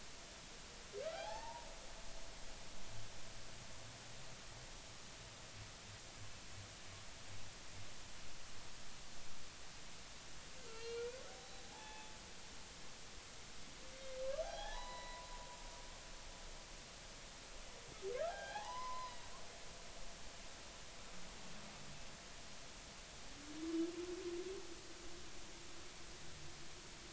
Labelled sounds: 1.0	1.7	humpback whale, 0.80 to 2.0 kHz
10.7	12.1	humpback whale, 0.80 to 4.3 kHz
13.9	15.3	humpback whale, 0.80 to 4.0 kHz
18.3	19.2	humpback whale, 0.80 to 3.4 kHz

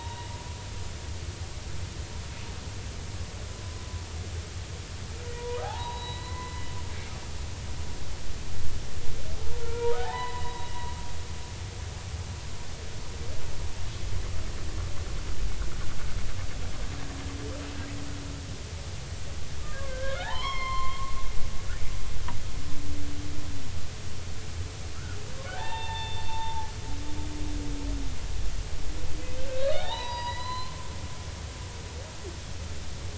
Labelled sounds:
5.3	6.7	humpback whale, 0.80 to 4.0 kHz
9.6	10.7	humpback whale, 0.80 to 4.0 kHz
19.7	21.1	humpback whale, 0.80 to 4.3 kHz
25.5	26.7	humpback whale, 0.80 to 3.7 kHz
29.5	30.8	humpback whale, 0.80 to 5.0 kHz

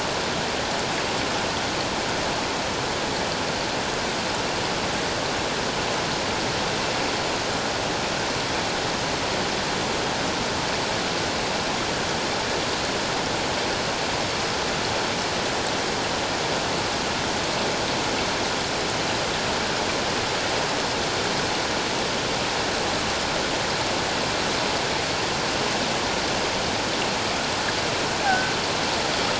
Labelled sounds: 28.2	28.5	killer whale, offshore, 1.4 to 1.7 kHz

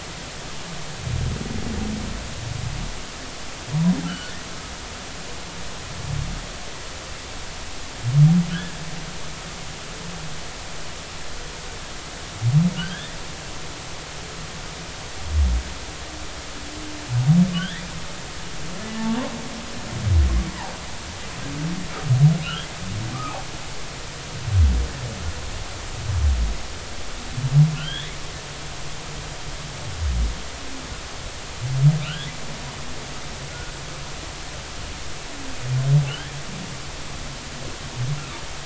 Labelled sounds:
4.0	4.3	humpback whale, 1.3 to 1.6 kHz
12.7	13.2	humpback whale, 1.4 to 3.7 kHz
17.5	17.8	humpback whale, 1.4 to 3.6 kHz
19.0	19.2	humpback whale, 1.0 to 1.2 kHz
22.4	23.4	humpback whale, 1.1 to 3.5 kHz
27.7	28.2	humpback whale, 1.3 to 3.8 kHz
32.0	32.3	humpback whale, 1.3 to 3.7 kHz
36.1	36.3	humpback whale, 2.6 to 3.4 kHz

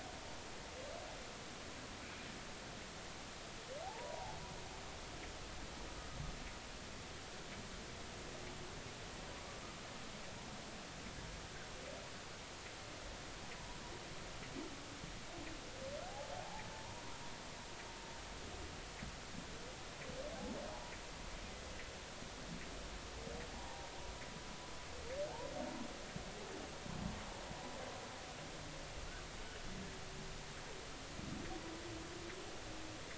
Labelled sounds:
3.8	4.4	humpback whale, 0.80 to 1.0 kHz
16.0	17.0	humpback whale, 0.80 to 0.99 kHz
23.5	23.9	humpback whale, 0.80 to 1.0 kHz

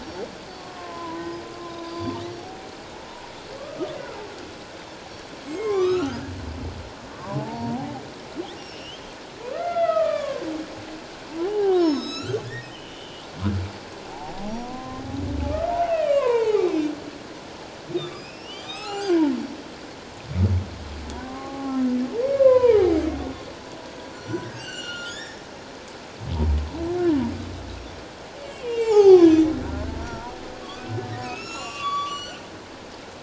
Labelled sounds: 0.6	1.5	humpback whale, 0.94 to 5.1 kHz
1.8	2.7	humpback whale, 0.78 to 4.8 kHz
3.9	4.2	humpback whale, 1.9 to 2.1 kHz
5.4	6.2	humpback whale, 1.0 to 7.9 kHz
7.3	9.0	humpback whale, 0.78 to 5.7 kHz
9.5	10.5	humpback whale, 1.0 to 3.6 kHz
11.4	13.2	humpback whale, 0.78 to 8.0 kHz
14.1	15.0	humpback whale, 0.78 to 1.2 kHz
15.5	16.8	humpback whale, 0.78 to 3.2 kHz
17.9	19.3	humpback whale, 0.78 to 6.4 kHz
21.2	23.0	humpback whale, 0.78 to 2.6 kHz
24.1	25.4	humpback whale, 1.3 to 8.0 kHz
28.4	29.5	humpback whale, 0.78 to 7.3 kHz
30.0	32.4	humpback whale, 0.88 to 7.4 kHz

